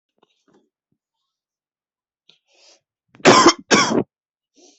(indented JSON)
{
  "expert_labels": [
    {
      "quality": "good",
      "cough_type": "dry",
      "dyspnea": false,
      "wheezing": false,
      "stridor": false,
      "choking": false,
      "congestion": true,
      "nothing": false,
      "diagnosis": "upper respiratory tract infection",
      "severity": "mild"
    }
  ],
  "age": 22,
  "gender": "male",
  "respiratory_condition": true,
  "fever_muscle_pain": false,
  "status": "symptomatic"
}